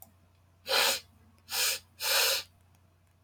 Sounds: Sniff